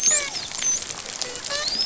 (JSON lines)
{"label": "biophony, dolphin", "recorder": "SoundTrap 500"}